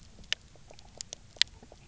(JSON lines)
{"label": "biophony, knock croak", "recorder": "SoundTrap 300"}